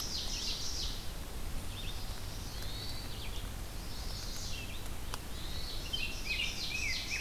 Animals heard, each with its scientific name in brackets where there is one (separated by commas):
Rose-breasted Grosbeak (Pheucticus ludovicianus), Red-eyed Vireo (Vireo olivaceus), Common Yellowthroat (Geothlypis trichas), Chestnut-sided Warbler (Setophaga pensylvanica), Hermit Thrush (Catharus guttatus), Ovenbird (Seiurus aurocapilla)